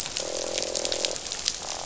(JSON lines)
{"label": "biophony, croak", "recorder": "SoundTrap 500"}